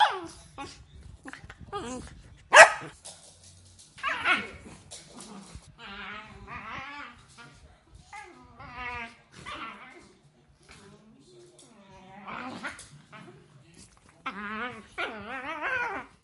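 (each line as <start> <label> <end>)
0.0 A puppy whining. 2.4
2.5 A puppy barks. 2.9
4.0 A puppy growls. 16.2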